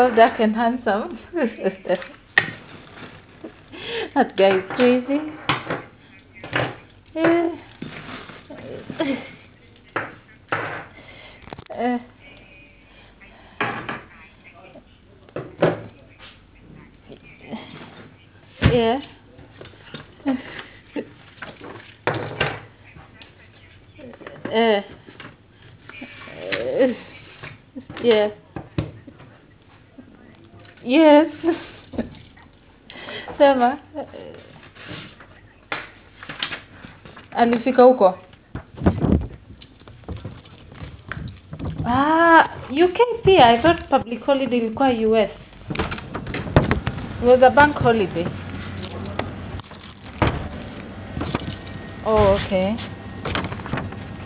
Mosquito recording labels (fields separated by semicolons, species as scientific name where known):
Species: no mosquito; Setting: insect culture